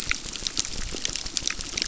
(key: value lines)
label: biophony, crackle
recorder: SoundTrap 600